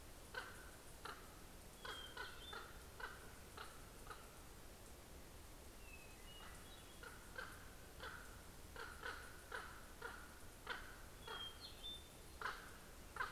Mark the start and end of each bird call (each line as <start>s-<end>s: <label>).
0.0s-4.4s: Common Raven (Corvus corax)
1.5s-3.3s: Hermit Thrush (Catharus guttatus)
5.2s-7.2s: Hermit Thrush (Catharus guttatus)
6.3s-11.6s: Common Raven (Corvus corax)
10.8s-12.4s: Hermit Thrush (Catharus guttatus)
12.1s-13.3s: Common Raven (Corvus corax)